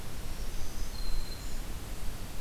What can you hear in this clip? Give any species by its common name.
Black-throated Green Warbler